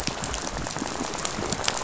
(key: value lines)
label: biophony, rattle
recorder: SoundTrap 500